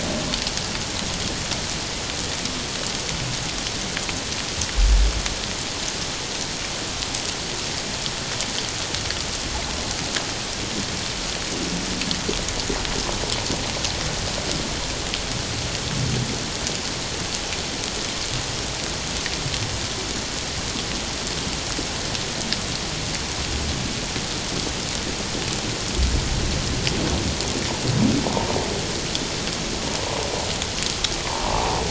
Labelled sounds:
31.2	31.8	humpback whale, 0.78 to 1.2 kHz

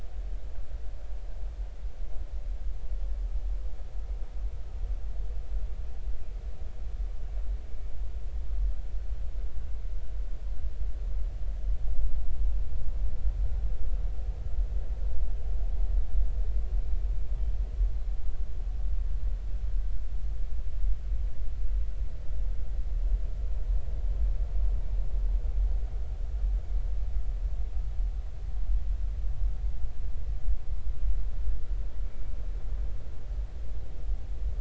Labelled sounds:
32.0	32.3	killer whale, northern resident, 2.2 to 2.3 kHz

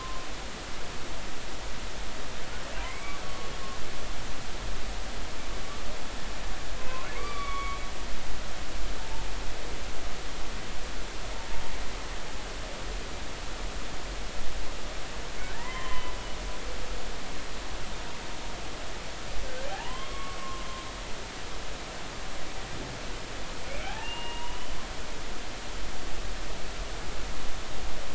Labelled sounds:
2.8	3.5	humpback whale, 0.90 to 2.4 kHz
7.1	7.8	humpback whale, 1.1 to 2.4 kHz
15.5	16.1	humpback whale, 0.86 to 3.2 kHz
19.7	20.6	humpback whale, 0.80 to 3.3 kHz
23.8	24.7	humpback whale, 0.80 to 3.1 kHz

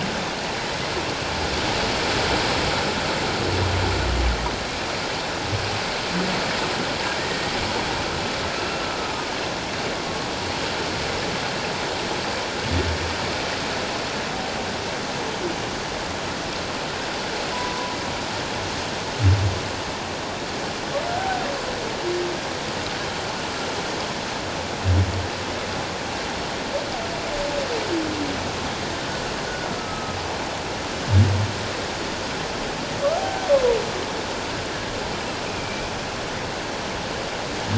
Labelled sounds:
7.3	7.6	humpback whale, 1.8 to 2.0 kHz
8.5	8.8	humpback whale, 2.4 to 2.8 kHz
17.5	18.0	humpback whale, 0.94 to 1.1 kHz
29.7	30.2	humpback whale, 1.2 to 1.3 kHz
35.5	35.9	humpback whale, 2.3 to 2.7 kHz

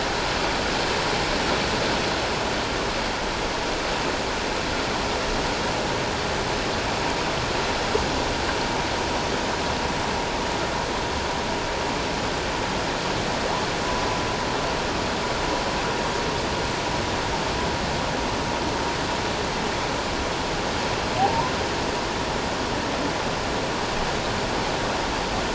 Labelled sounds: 21.2	21.5	humpback whale, 0.78 to 1.1 kHz

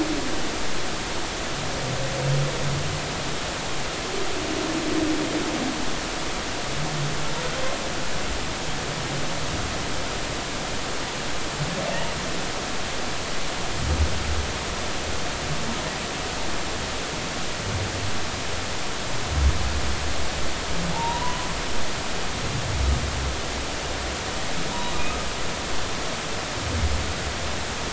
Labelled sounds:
20.9	21.5	humpback whale, 0.80 to 1.1 kHz

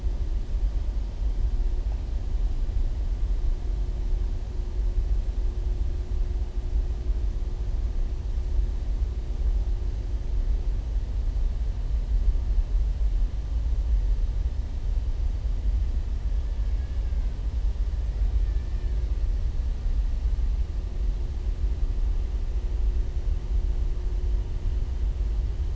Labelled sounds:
16.6	17.3	killer whale, southern resident, 1.0 to 2.9 kHz

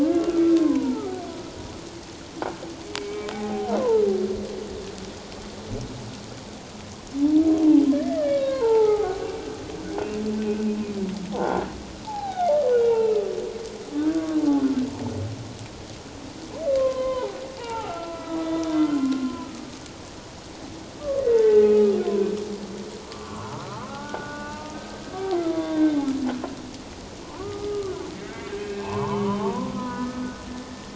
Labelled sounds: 0.1	1.2	humpback whale, 0.78 to 1.6 kHz
3.0	3.7	humpback whale, 0.78 to 2.3 kHz
7.9	9.2	humpback whale, 0.78 to 2.4 kHz
11.3	11.6	croaking sound likely from a nearby submerged object, 0.78 to 1.1 kHz
12.0	13.3	humpback whale, 0.78 to 4.1 kHz
14.0	14.4	humpback whale, 1.1 to 1.6 kHz
16.7	19.8	humpback whale, 0.78 to 2.9 kHz
21.0	21.9	humpback whale, 0.81 to 2.0 kHz
23.0	26.1	humpback whale, 0.88 to 3.7 kHz
27.2	27.9	humpback whale, 0.88 to 1.3 kHz
28.6	30.9	humpback whale, 0.81 to 2.7 kHz

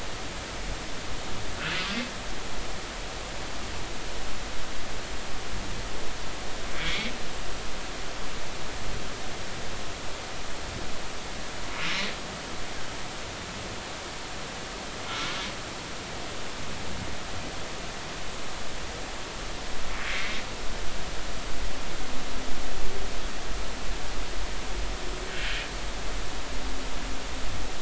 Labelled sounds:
6.7	7.1	humpback whale, 2.1 to 2.4 kHz
15.1	15.4	humpback whale, 1.3 to 1.5 kHz
20.1	20.4	humpback whale, 1.9 to 2.4 kHz
25.3	25.6	humpback whale, 1.4 to 1.8 kHz

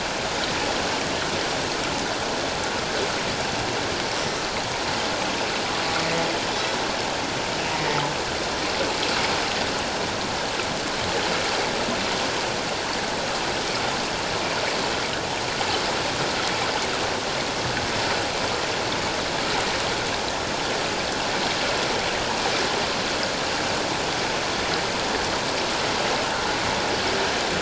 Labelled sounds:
7.7	8.0	humpback whale, 1.8 to 2.0 kHz

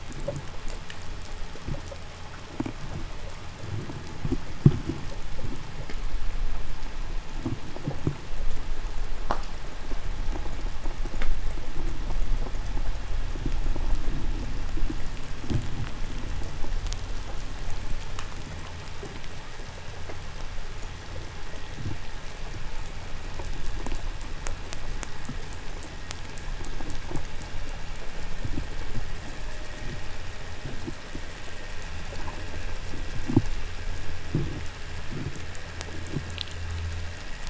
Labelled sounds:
0.0	8.4	noise likely from the mooring, 0 to 0.76 kHz
26.2	35.8	vessel noise, 1.2 to 3.1 kHz

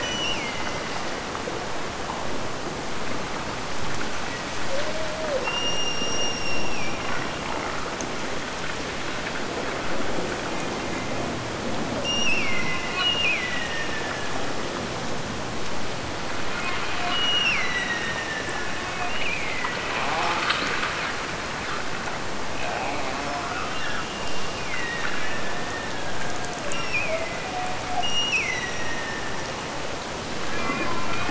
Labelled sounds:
0.0	1.3	killer whale, Bigg's (transient), Gulf of Alaska transient, 1.8 to 8.0 kHz
5.4	7.5	killer whale, Bigg's (transient), Gulf of Alaska transient, 1.8 to 8.0 kHz
12.0	14.4	killer whale, Bigg's (transient), Gulf of Alaska transient, 1.7 to 8.0 kHz
17.1	20.1	killer whale, Bigg's (transient), Gulf of Alaska transient, 1.6 to 5.9 kHz
24.5	29.7	killer whale, Bigg's (transient), Gulf of Alaska transient, 1.4 to 5.8 kHz

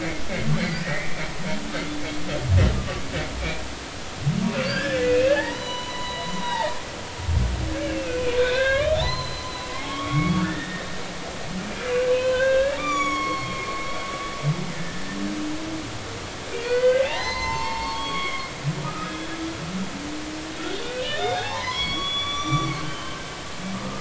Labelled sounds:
0.8	1.1	humpback whale, 1.8 to 2.1 kHz
2.8	3.0	humpback whale, 1.1 to 1.2 kHz
4.5	6.7	humpback whale, 0.80 to 6.0 kHz
7.8	9.5	humpback whale, 0.80 to 4.2 kHz
9.7	10.9	humpback whale, 1.0 to 3.4 kHz
12.1	13.7	humpback whale, 0.96 to 7.1 kHz
14.7	15.2	humpback whale, 1.7 to 1.9 kHz
16.5	19.4	humpback whale, 0.80 to 4.7 kHz
20.8	23.2	humpback whale, 0.80 to 6.1 kHz

